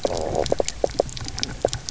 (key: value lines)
label: biophony, low growl
recorder: SoundTrap 300